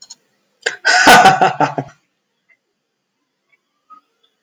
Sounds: Laughter